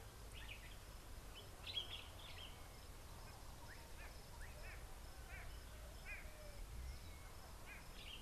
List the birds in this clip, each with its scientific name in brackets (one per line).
Common Bulbul (Pycnonotus barbatus)
White-bellied Go-away-bird (Corythaixoides leucogaster)